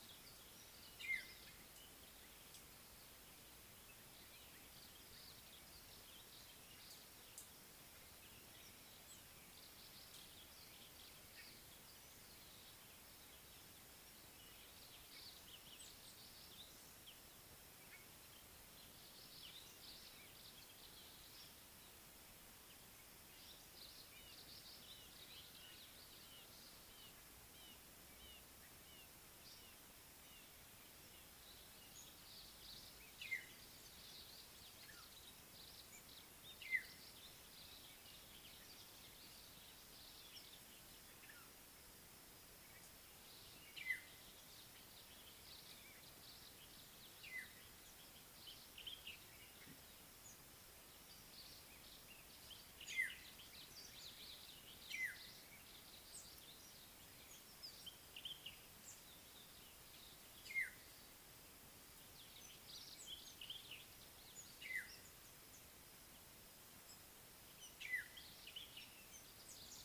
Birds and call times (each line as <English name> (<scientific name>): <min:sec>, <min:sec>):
African Black-headed Oriole (Oriolus larvatus): 0:01.2, 0:33.4, 0:43.9, 0:53.1, 1:00.6, 1:08.0
Red-fronted Barbet (Tricholaema diademata): 0:28.3
Common Bulbul (Pycnonotus barbatus): 0:58.2, 1:03.5